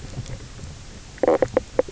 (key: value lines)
label: biophony, knock croak
recorder: SoundTrap 300